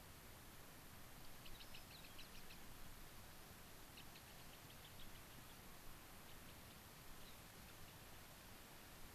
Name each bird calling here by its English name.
Gray-crowned Rosy-Finch, White-crowned Sparrow